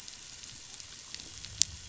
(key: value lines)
label: biophony, growl
recorder: SoundTrap 500

label: anthrophony, boat engine
recorder: SoundTrap 500